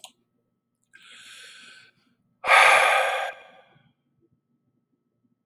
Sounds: Sigh